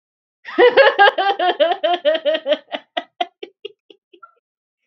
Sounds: Laughter